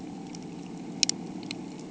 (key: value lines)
label: anthrophony, boat engine
recorder: HydroMoth